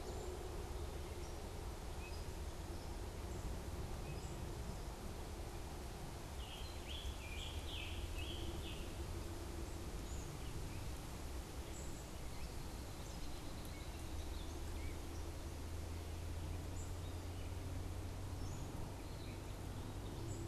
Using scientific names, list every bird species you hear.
Piranga olivacea, Agelaius phoeniceus